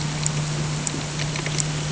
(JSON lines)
{"label": "anthrophony, boat engine", "recorder": "HydroMoth"}